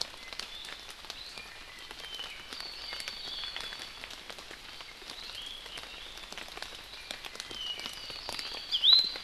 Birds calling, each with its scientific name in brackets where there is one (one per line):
Iiwi (Drepanis coccinea)
Apapane (Himatione sanguinea)